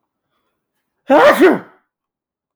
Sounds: Sneeze